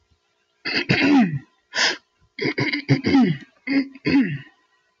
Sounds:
Throat clearing